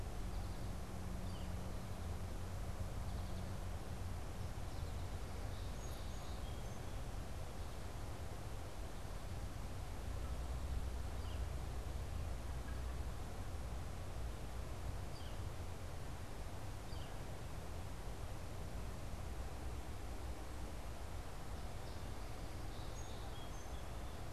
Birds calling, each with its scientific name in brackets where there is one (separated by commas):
Song Sparrow (Melospiza melodia), Northern Flicker (Colaptes auratus), American Goldfinch (Spinus tristis)